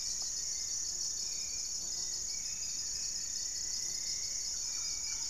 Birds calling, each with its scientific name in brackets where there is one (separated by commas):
Gray-fronted Dove (Leptotila rufaxilla), Hauxwell's Thrush (Turdus hauxwelli), Black-faced Antthrush (Formicarius analis), Spot-winged Antshrike (Pygiptila stellaris), Thrush-like Wren (Campylorhynchus turdinus), Plumbeous Antbird (Myrmelastes hyperythrus)